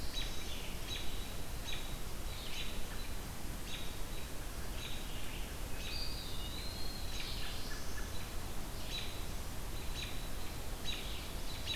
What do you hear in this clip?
Black-throated Blue Warbler, American Robin, Eastern Wood-Pewee